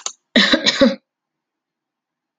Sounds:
Cough